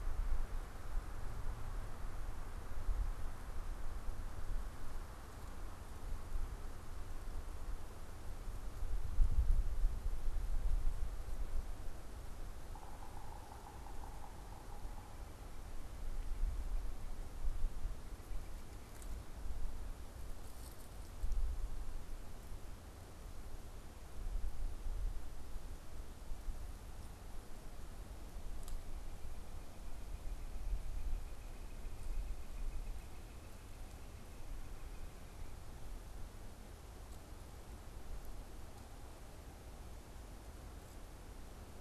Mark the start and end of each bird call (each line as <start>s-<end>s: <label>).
12.6s-15.6s: Yellow-bellied Sapsucker (Sphyrapicus varius)
29.0s-35.5s: Northern Flicker (Colaptes auratus)